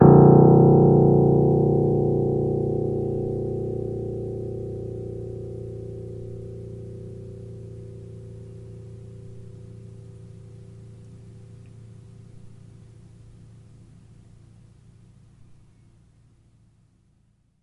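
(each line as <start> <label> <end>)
0.0 A deep piano key is struck forcefully, producing a slight buzzing resonance that gradually fades away. 10.0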